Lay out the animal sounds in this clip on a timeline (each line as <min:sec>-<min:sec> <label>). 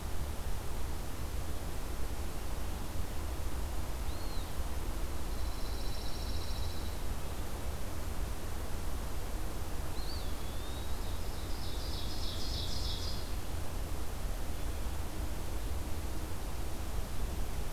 0:03.9-0:04.7 Eastern Wood-Pewee (Contopus virens)
0:05.1-0:07.0 Pine Warbler (Setophaga pinus)
0:09.8-0:11.1 Eastern Wood-Pewee (Contopus virens)
0:10.9-0:13.4 Ovenbird (Seiurus aurocapilla)